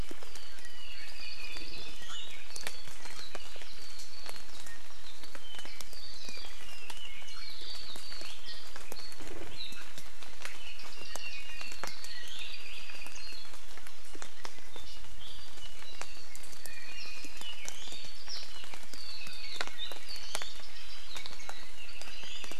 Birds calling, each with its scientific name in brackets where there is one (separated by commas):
Apapane (Himatione sanguinea), Iiwi (Drepanis coccinea)